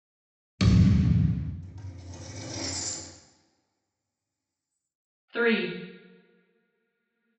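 At 0.58 seconds, there is thumping. Then, at 1.6 seconds, you can hear pulleys. Next, at 5.33 seconds, a voice says "three."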